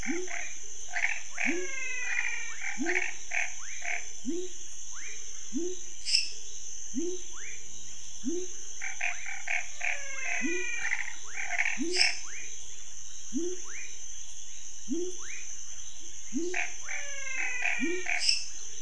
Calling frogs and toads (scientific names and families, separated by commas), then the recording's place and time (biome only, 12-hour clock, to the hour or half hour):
Boana raniceps (Hylidae), Leptodactylus labyrinthicus (Leptodactylidae), Leptodactylus fuscus (Leptodactylidae), Physalaemus albonotatus (Leptodactylidae), Dendropsophus minutus (Hylidae), Physalaemus nattereri (Leptodactylidae)
Cerrado, 7:30pm